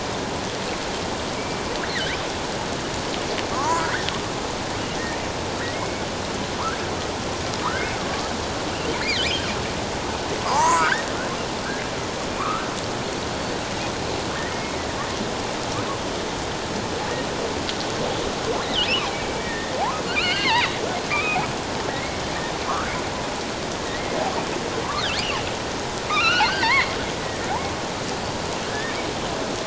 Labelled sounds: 1.3	1.6	killer whale, offshore, 2.2 to 2.4 kHz
3.5	4.1	killer whale, offshore, 0.78 to 2.1 kHz
5.7	6.0	killer whale, offshore, 2.0 to 2.3 kHz
7.6	8.3	killer whale, offshore, 0.91 to 1.7 kHz
10.4	11.1	killer whale, offshore, 0.78 to 1.9 kHz
12.4	12.6	killer whale, offshore, 1.0 to 1.4 kHz
14.5	14.8	killer whale, offshore, 2.1 to 2.3 kHz
18.6	19.7	killer whale, offshore, 1.8 to 4.1 kHz
20.1	21.5	killer whale, offshore, 1.1 to 4.5 kHz
22.7	22.9	killer whale, offshore, 0.97 to 1.7 kHz
26.1	27.0	killer whale, offshore, 0.84 to 3.0 kHz
28.7	29.0	killer whale, offshore, 1.5 to 1.9 kHz

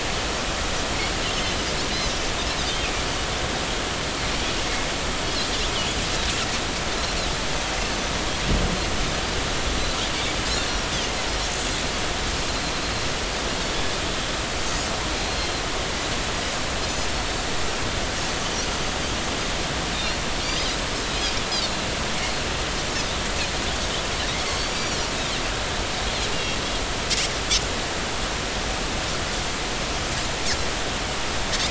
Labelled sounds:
15.3	15.5	Pacific white-sided dolphin, 4.1 to 4.4 kHz
20.4	21.4	Pacific white-sided dolphin, 4.4 to 5.1 kHz
22.2	22.4	Pacific white-sided dolphin, 4.2 to 4.4 kHz
24.4	25.0	Pacific white-sided dolphin, 4.1 to 7.1 kHz
26.3	26.6	Pacific white-sided dolphin, 2.7 to 2.9 kHz

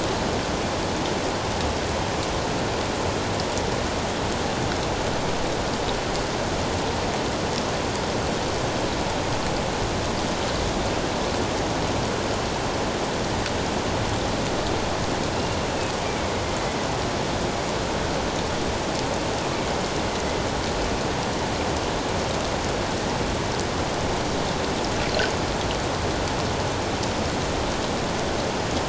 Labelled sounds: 16.0	16.3	killer whale, northern resident, A clan, AA subclan, A04 pod, 2.2 to 2.4 kHz

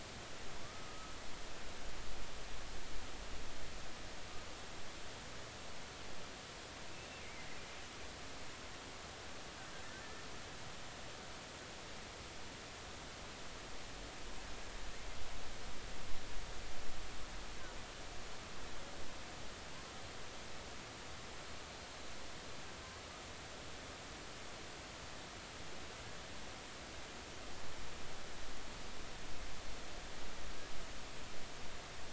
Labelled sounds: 0.6	1.1	killer whale, Bigg's (transient), 1.1 to 1.3 kHz
6.9	7.2	killer whale, Bigg's (transient), 2.6 to 2.8 kHz
21.7	22.0	killer whale, Bigg's (transient), 4.1 to 4.3 kHz

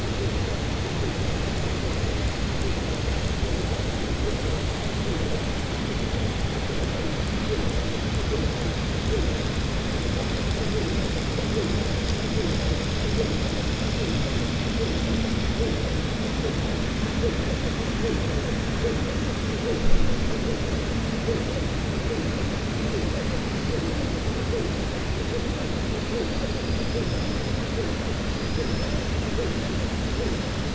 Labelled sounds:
26.5	27.5	killer whale, southern resident, 4.7 to 5.5 kHz
28.3	29.0	killer whale, southern resident, 4.1 to 6.0 kHz

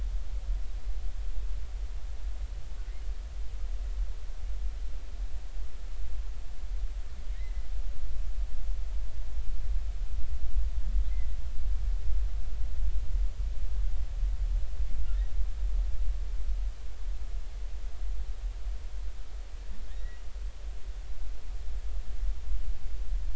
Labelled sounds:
7.3	7.6	humpback whale, 1.8 to 2.1 kHz
19.9	20.2	humpback whale, 1.7 to 2.0 kHz

